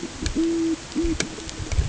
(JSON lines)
{"label": "ambient", "recorder": "HydroMoth"}